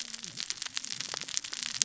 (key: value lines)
label: biophony, cascading saw
recorder: SoundTrap 600 or HydroMoth